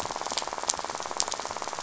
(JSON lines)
{"label": "biophony, rattle", "recorder": "SoundTrap 500"}